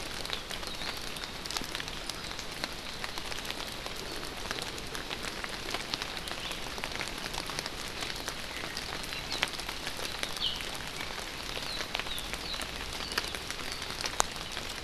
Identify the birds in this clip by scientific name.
Zosterops japonicus